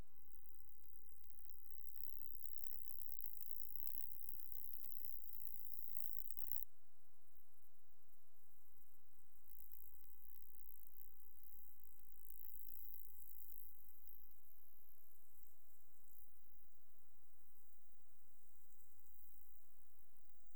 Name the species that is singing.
Stenobothrus rubicundulus